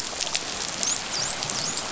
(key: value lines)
label: biophony, dolphin
recorder: SoundTrap 500